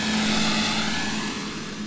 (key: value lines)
label: anthrophony, boat engine
recorder: SoundTrap 500